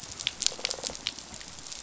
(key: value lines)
label: biophony
recorder: SoundTrap 500